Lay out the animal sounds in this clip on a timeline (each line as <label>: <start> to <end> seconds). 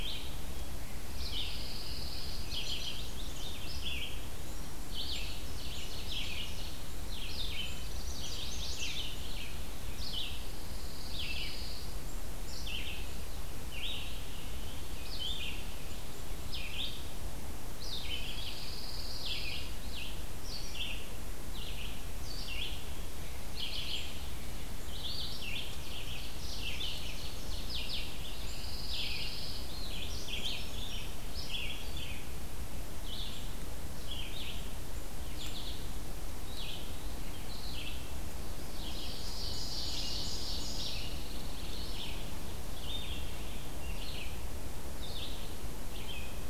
Red-eyed Vireo (Vireo olivaceus): 0.0 to 46.5 seconds
Pine Warbler (Setophaga pinus): 1.1 to 2.5 seconds
Chestnut-sided Warbler (Setophaga pensylvanica): 2.4 to 3.6 seconds
Ovenbird (Seiurus aurocapilla): 4.9 to 6.9 seconds
Pine Warbler (Setophaga pinus): 7.1 to 8.6 seconds
Chestnut-sided Warbler (Setophaga pensylvanica): 7.9 to 9.1 seconds
Pine Warbler (Setophaga pinus): 10.3 to 11.9 seconds
Pine Warbler (Setophaga pinus): 18.2 to 19.8 seconds
Ovenbird (Seiurus aurocapilla): 25.4 to 28.0 seconds
Pine Warbler (Setophaga pinus): 28.3 to 29.7 seconds
Brown Creeper (Certhia americana): 29.9 to 31.3 seconds
Ovenbird (Seiurus aurocapilla): 38.7 to 41.1 seconds
Pine Warbler (Setophaga pinus): 40.8 to 41.9 seconds